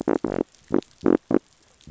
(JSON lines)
{"label": "biophony", "recorder": "SoundTrap 500"}